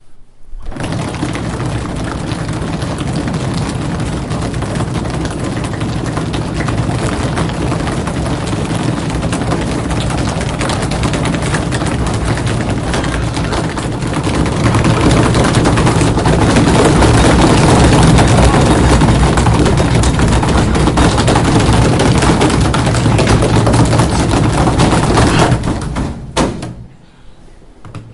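A group of students pound loudly on their desks with gradually increasing intensity. 0:00.0 - 0:25.6
The desk is pounded quickly with decreasing intensity, ending with one final loud bang. 0:25.6 - 0:28.1

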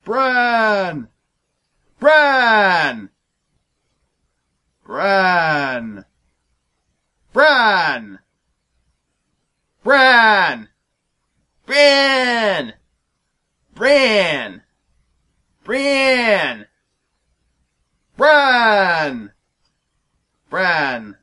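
A man practices vowel sounds with pauses in between. 0:00.0 - 0:21.2
A clear voice says a single word. 0:00.1 - 0:01.1
A clear voice says a word loudly at medium volume and pitch. 0:02.0 - 0:03.1
A clear voice says a single word with medium volume and pitch, conveying sadness. 0:04.9 - 0:06.1
Someone says a clear word starting loudly and ending at medium volume and pitch. 0:07.3 - 0:08.2
A clear voice says a word loudly with medium pitch. 0:09.8 - 0:10.7
Clear voice saying the word "brain," starting loud and ending at medium volume and pitch. 0:11.7 - 0:12.8
Clear voice saying the word "brain," starting loud and ending at medium volume and pitch. 0:13.7 - 0:14.6
A clear voice says a name with medium volume and a sad tone. 0:15.7 - 0:16.7
Someone says a clear word starting loudly and ending at medium volume and pitch. 0:18.2 - 0:19.3
A clear voice says a single word in a medium volume and pitch with a bland tone. 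0:20.5 - 0:21.2

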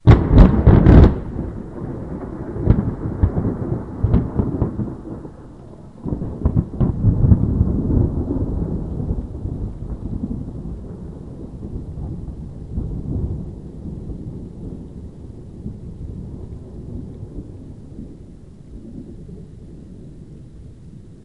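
A loud, sudden roll of thunder during a storm. 0:00.0 - 0:01.3
A loud roll of thunder. 0:01.3 - 0:05.4
A rumble of thunder gradually fades. 0:06.0 - 0:21.2

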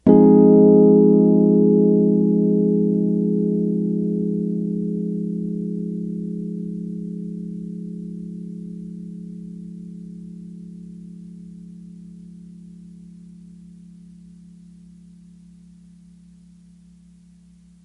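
A single piano chord fades away. 0:00.0 - 0:17.8
Quiet static noise in the background. 0:00.2 - 0:17.8

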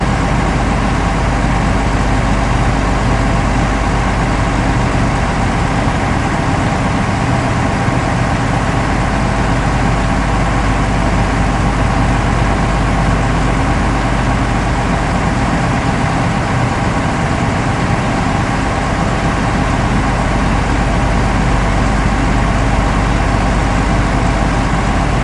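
A bus engine is running. 0:00.0 - 0:25.2

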